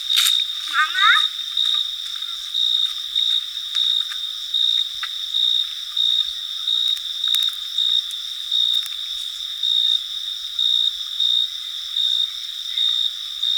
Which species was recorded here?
Oecanthus pellucens